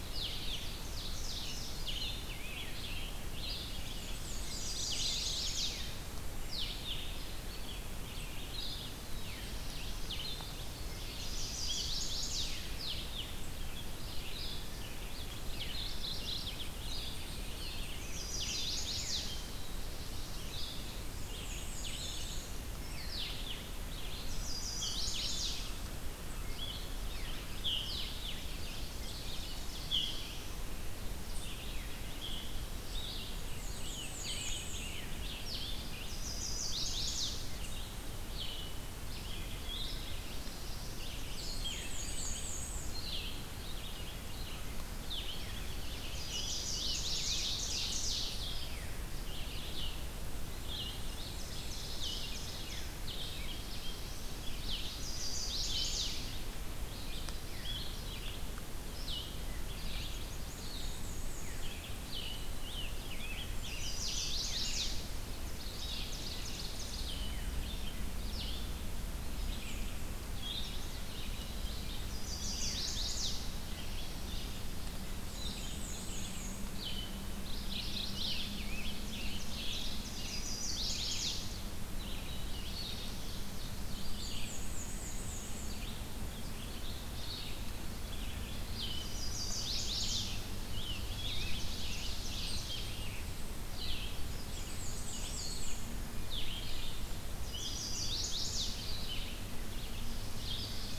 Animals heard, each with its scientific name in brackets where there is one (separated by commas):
Black-throated Blue Warbler (Setophaga caerulescens), Chestnut-sided Warbler (Setophaga pensylvanica), Scarlet Tanager (Piranga olivacea), Black-and-white Warbler (Mniotilta varia), Red-eyed Vireo (Vireo olivaceus), Ovenbird (Seiurus aurocapilla), Mourning Warbler (Geothlypis philadelphia)